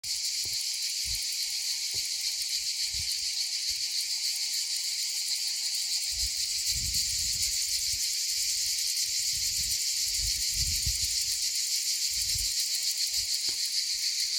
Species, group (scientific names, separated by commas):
Cicada orni, Cicadidae